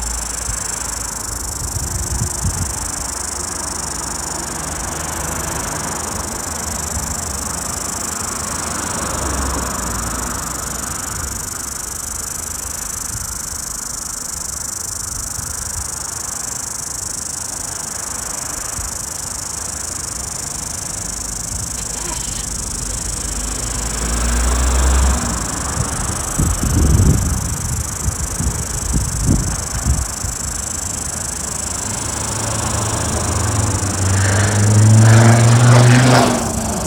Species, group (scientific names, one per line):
Amphipsalta zelandica
Cicadidae